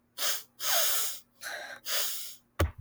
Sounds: Sniff